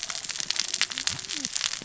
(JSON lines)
{"label": "biophony, cascading saw", "recorder": "SoundTrap 600 or HydroMoth"}